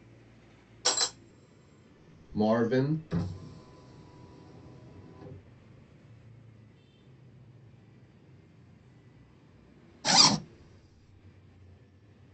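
First, at 0.85 seconds, glass shatters. At 2.28 seconds, someone says "Marvin." Next, at 3.07 seconds, a car can be heard. Later, at 10.04 seconds, comes the sound of a zipper.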